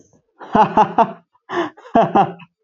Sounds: Laughter